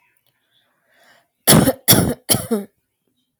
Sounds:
Cough